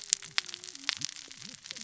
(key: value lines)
label: biophony, cascading saw
recorder: SoundTrap 600 or HydroMoth